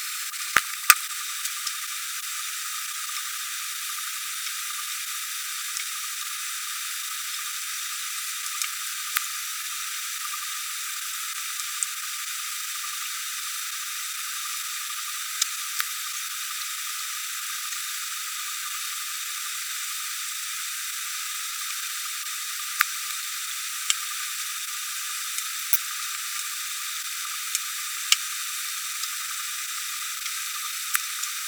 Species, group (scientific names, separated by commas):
Poecilimon tessellatus, Orthoptera